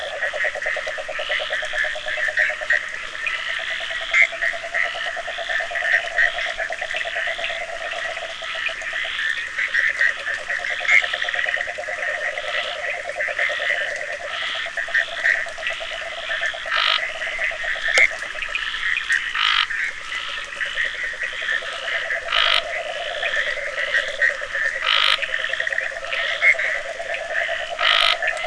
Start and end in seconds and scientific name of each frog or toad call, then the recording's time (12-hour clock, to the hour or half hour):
0.0	18.6	Rhinella icterica
0.0	28.4	Boana bischoffi
6.3	15.9	Sphaenorhynchus surdus
16.6	28.4	Scinax perereca
19.9	28.4	Rhinella icterica
~1am